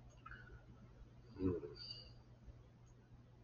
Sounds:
Sigh